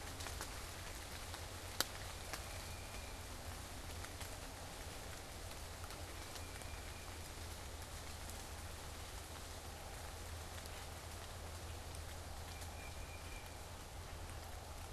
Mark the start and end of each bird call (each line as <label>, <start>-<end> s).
Tufted Titmouse (Baeolophus bicolor), 2.2-3.3 s
Tufted Titmouse (Baeolophus bicolor), 6.1-7.3 s
Tufted Titmouse (Baeolophus bicolor), 12.4-13.7 s